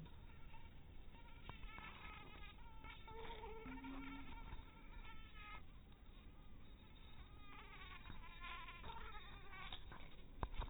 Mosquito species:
mosquito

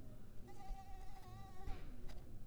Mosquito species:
Mansonia africanus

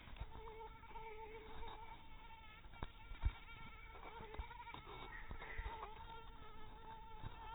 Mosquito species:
mosquito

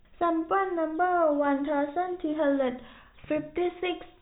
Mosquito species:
no mosquito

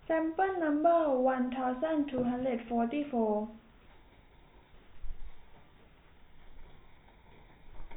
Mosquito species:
no mosquito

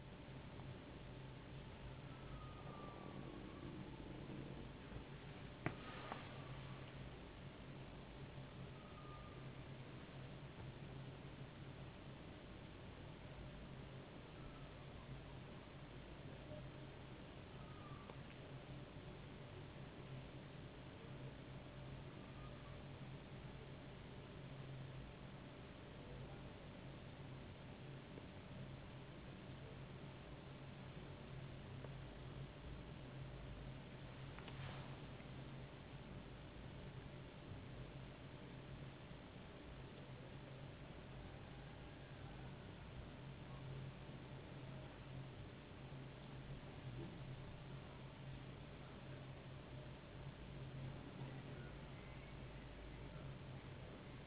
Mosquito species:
no mosquito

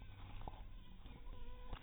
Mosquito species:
mosquito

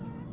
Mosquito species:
Aedes albopictus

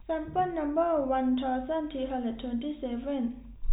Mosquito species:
no mosquito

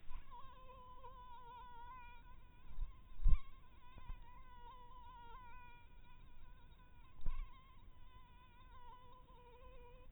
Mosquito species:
mosquito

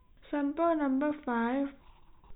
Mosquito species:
no mosquito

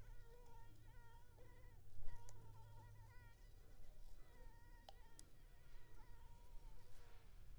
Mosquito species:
Anopheles arabiensis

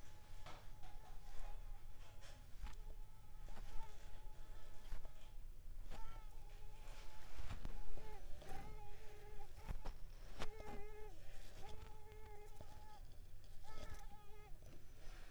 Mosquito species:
Mansonia africanus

